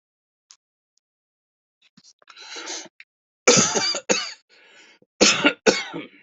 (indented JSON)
{
  "expert_labels": [
    {
      "quality": "ok",
      "cough_type": "unknown",
      "dyspnea": false,
      "wheezing": false,
      "stridor": false,
      "choking": false,
      "congestion": false,
      "nothing": true,
      "diagnosis": "lower respiratory tract infection",
      "severity": "mild"
    }
  ],
  "age": 58,
  "gender": "male",
  "respiratory_condition": false,
  "fever_muscle_pain": true,
  "status": "symptomatic"
}